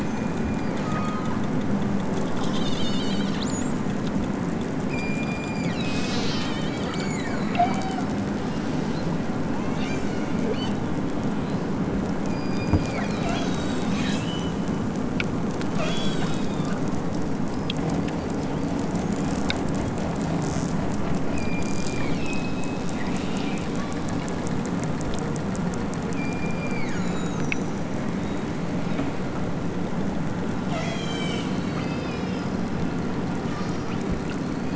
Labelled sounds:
0.0	1.4	killer whale, southern Alaska resident, 0.87 to 8.0 kHz
2.5	3.8	killer whale, southern Alaska resident, 2.2 to 8.0 kHz
4.9	8.1	killer whale, southern Alaska resident, 0.51 to 8.0 kHz
8.4	9.1	killer whale, southern Alaska resident, 1.9 to 8.0 kHz
9.7	10.8	killer whale, southern Alaska resident, 1.9 to 8.0 kHz
12.2	14.7	killer whale, southern Alaska resident, 1.4 to 8.0 kHz
15.7	16.9	killer whale, southern Alaska resident, 1.8 to 8.0 kHz
21.3	23.0	killer whale, southern Alaska resident, 1.9 to 5.6 kHz
23.7	24.5	killer whale, southern Alaska resident, 2.4 to 6.0 kHz
26.2	27.9	killer whale, southern Alaska resident, 0.83 to 7.5 kHz
30.7	32.6	killer whale, southern Alaska resident, 1.5 to 8.0 kHz
33.4	34.0	killer whale, southern Alaska resident, 2.3 to 6.2 kHz

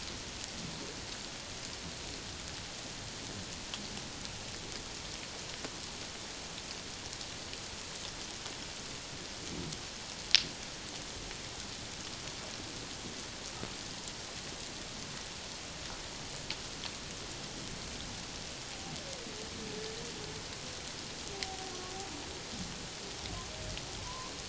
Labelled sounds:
21.3	21.7	humpback whale, 0.78 to 0.84 kHz
24.0	24.3	humpback whale, 0.94 to 1.2 kHz

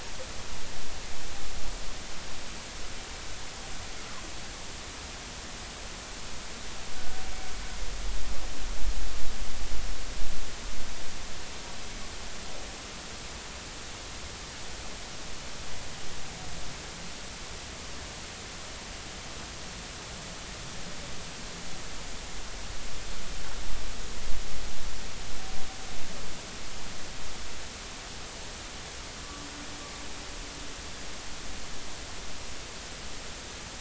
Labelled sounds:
7.0	7.2	humpback whale, 1.4 to 1.6 kHz

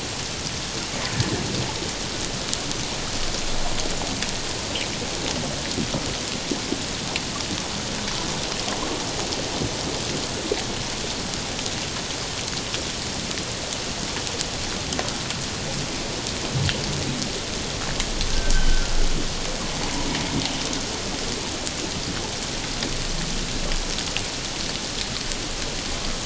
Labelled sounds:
18.5	18.9	humpback whale, 1.3 to 1.6 kHz

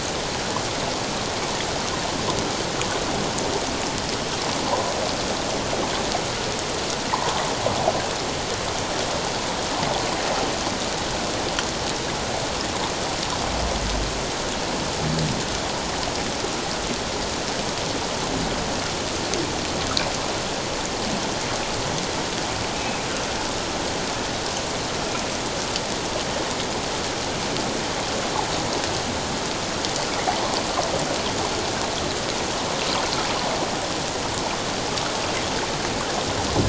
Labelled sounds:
4.6	4.9	humpback whale, 0.78 to 1.1 kHz
7.1	7.4	humpback whale, 0.81 to 1.1 kHz
22.7	23.0	humpback whale, 2.3 to 2.6 kHz

